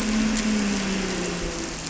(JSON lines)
{"label": "anthrophony, boat engine", "recorder": "SoundTrap 300"}